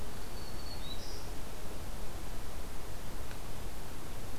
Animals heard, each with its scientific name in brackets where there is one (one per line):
Black-throated Green Warbler (Setophaga virens)